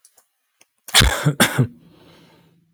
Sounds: Cough